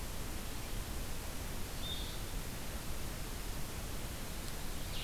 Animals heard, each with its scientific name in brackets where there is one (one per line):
Blue-headed Vireo (Vireo solitarius)